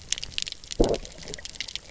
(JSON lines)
{"label": "biophony, low growl", "recorder": "SoundTrap 300"}